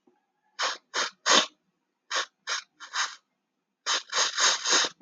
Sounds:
Sniff